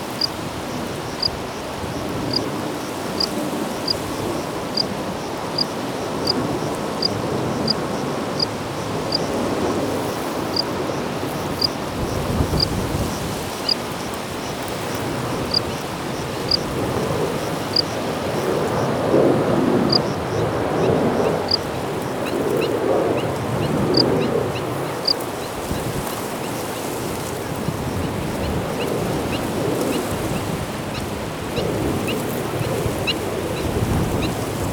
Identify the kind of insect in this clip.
orthopteran